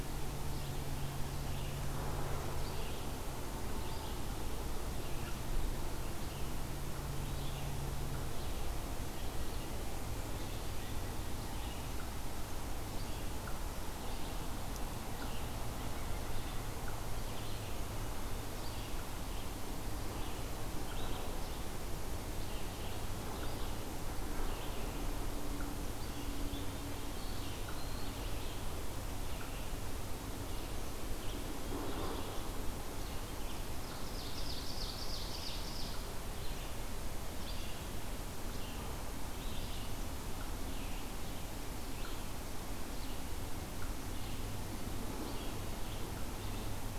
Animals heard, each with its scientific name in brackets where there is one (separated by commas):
Ovenbird (Seiurus aurocapilla), Eastern Wood-Pewee (Contopus virens), Red-eyed Vireo (Vireo olivaceus)